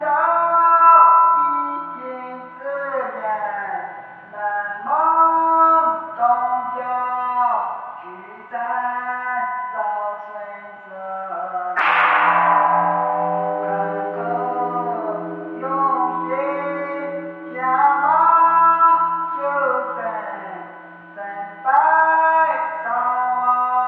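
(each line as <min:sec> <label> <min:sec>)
0:00.0 A monk chanting a night song with a loud, shallow voice. 0:02.5
0:02.6 A monk chants a night song in a constant, shallow voice. 0:04.1
0:04.2 A monk chanting a night song with a loud, shallow voice. 0:08.1
0:08.2 A monk chants a night song in a constant, shallow voice. 0:10.8
0:11.7 A gong is struck, producing a loud resonating pitch that rises at first and then gradually fades. 0:17.6
0:17.6 A monk chanting a night song with a loud, shallow voice. 0:20.7
0:21.4 A monk chanting a night song with a loud, shallow voice. 0:23.9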